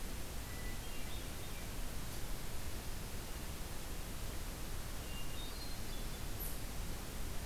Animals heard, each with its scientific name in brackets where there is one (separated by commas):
Hermit Thrush (Catharus guttatus)